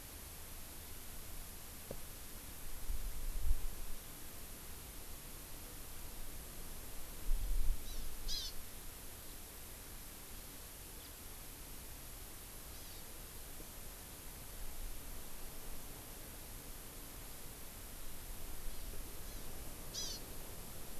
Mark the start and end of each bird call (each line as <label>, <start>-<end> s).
Hawaii Amakihi (Chlorodrepanis virens), 7.8-8.5 s
House Finch (Haemorhous mexicanus), 11.0-11.1 s
Hawaii Amakihi (Chlorodrepanis virens), 12.7-13.0 s
Hawaii Amakihi (Chlorodrepanis virens), 18.6-18.9 s
Hawaii Amakihi (Chlorodrepanis virens), 19.2-19.5 s
Hawaii Amakihi (Chlorodrepanis virens), 19.9-20.2 s